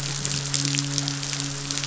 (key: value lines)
label: biophony, midshipman
recorder: SoundTrap 500